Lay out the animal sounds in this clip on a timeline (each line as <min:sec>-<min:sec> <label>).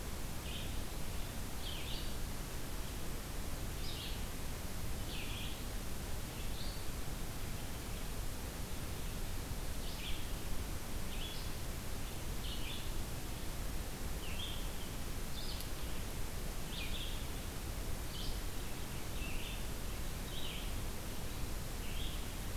0:00.0-0:07.5 Red-eyed Vireo (Vireo olivaceus)
0:09.7-0:22.6 Red-eyed Vireo (Vireo olivaceus)